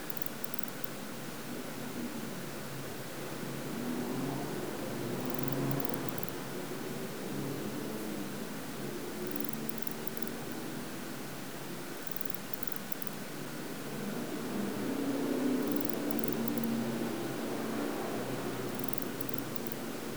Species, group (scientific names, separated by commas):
Barbitistes obtusus, Orthoptera